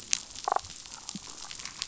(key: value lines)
label: biophony, damselfish
recorder: SoundTrap 500